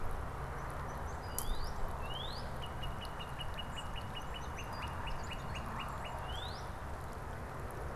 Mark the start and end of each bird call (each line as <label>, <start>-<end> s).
Song Sparrow (Melospiza melodia), 0.3-1.7 s
Northern Cardinal (Cardinalis cardinalis), 1.1-6.7 s
Song Sparrow (Melospiza melodia), 3.5-5.1 s